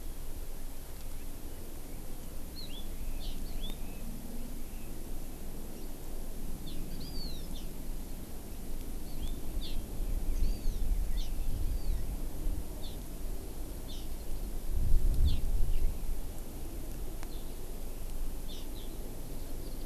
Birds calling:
Hawaiian Hawk (Buteo solitarius)
Hawaii Amakihi (Chlorodrepanis virens)
House Finch (Haemorhous mexicanus)

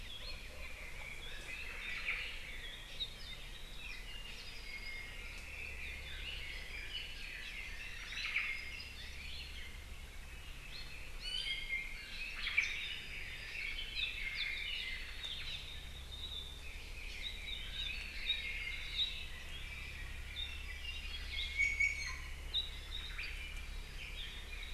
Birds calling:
Red-billed Leiothrix (Leiothrix lutea)
Iiwi (Drepanis coccinea)
Omao (Myadestes obscurus)
Apapane (Himatione sanguinea)

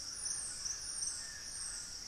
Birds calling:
White-throated Toucan (Ramphastos tucanus)
Dusky-throated Antshrike (Thamnomanes ardesiacus)

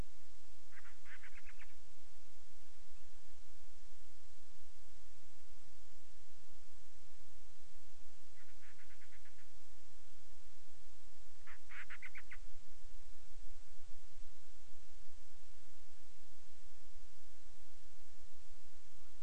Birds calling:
Band-rumped Storm-Petrel (Hydrobates castro)

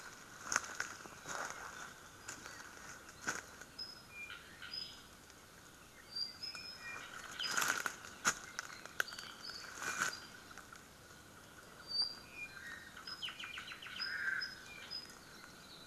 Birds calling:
Apapane (Himatione sanguinea)
Omao (Myadestes obscurus)

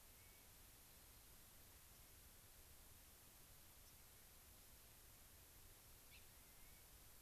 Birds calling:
White-crowned Sparrow (Zonotrichia leucophrys)
Gray-crowned Rosy-Finch (Leucosticte tephrocotis)
Clark's Nutcracker (Nucifraga columbiana)

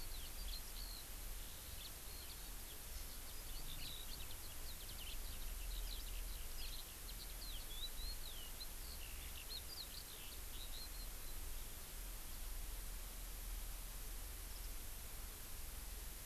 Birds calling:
Eurasian Skylark (Alauda arvensis)

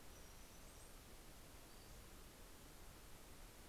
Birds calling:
Brown-headed Cowbird (Molothrus ater)

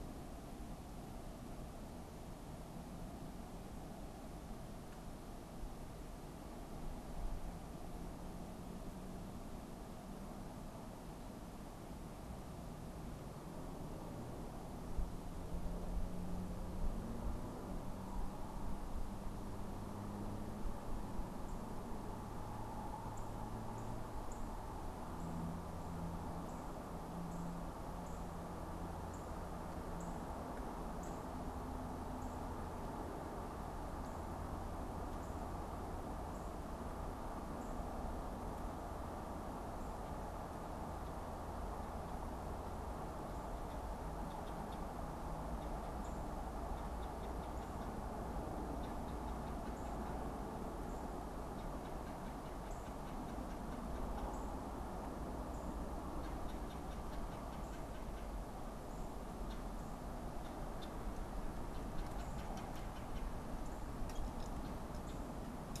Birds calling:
Northern Cardinal (Cardinalis cardinalis)
Red-bellied Woodpecker (Melanerpes carolinus)

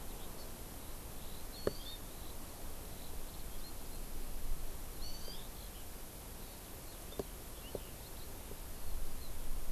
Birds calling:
Eurasian Skylark (Alauda arvensis)
Hawaii Amakihi (Chlorodrepanis virens)

